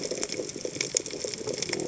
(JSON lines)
{"label": "biophony", "recorder": "HydroMoth"}